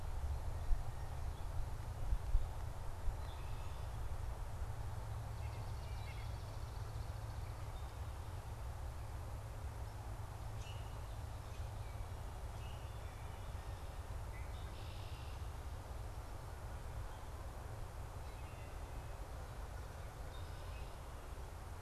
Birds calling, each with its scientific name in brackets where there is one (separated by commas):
White-breasted Nuthatch (Sitta carolinensis), Common Grackle (Quiscalus quiscula), Canada Goose (Branta canadensis), Swamp Sparrow (Melospiza georgiana), Wood Thrush (Hylocichla mustelina), Red-winged Blackbird (Agelaius phoeniceus)